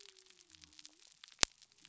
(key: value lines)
label: biophony
recorder: SoundTrap 300